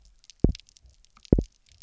{"label": "biophony, double pulse", "recorder": "SoundTrap 300"}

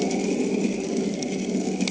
{"label": "anthrophony, boat engine", "recorder": "HydroMoth"}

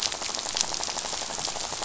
{"label": "biophony, rattle", "recorder": "SoundTrap 500"}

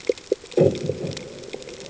{"label": "anthrophony, bomb", "recorder": "HydroMoth"}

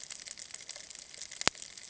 {"label": "ambient", "recorder": "HydroMoth"}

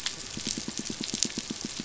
{"label": "biophony, pulse", "recorder": "SoundTrap 500"}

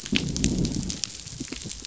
{"label": "biophony, growl", "recorder": "SoundTrap 500"}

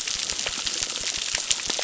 {"label": "biophony, crackle", "recorder": "SoundTrap 600"}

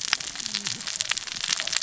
{"label": "biophony, cascading saw", "recorder": "SoundTrap 600 or HydroMoth"}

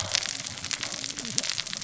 {"label": "biophony, cascading saw", "recorder": "SoundTrap 600 or HydroMoth"}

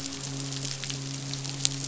{"label": "biophony, midshipman", "recorder": "SoundTrap 500"}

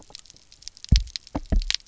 {"label": "biophony, double pulse", "recorder": "SoundTrap 300"}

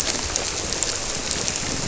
{"label": "biophony", "recorder": "SoundTrap 300"}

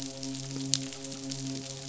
{"label": "biophony, midshipman", "recorder": "SoundTrap 500"}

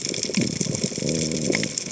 {"label": "biophony", "recorder": "HydroMoth"}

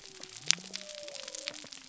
{"label": "biophony", "recorder": "SoundTrap 300"}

